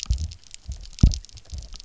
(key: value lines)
label: biophony, double pulse
recorder: SoundTrap 300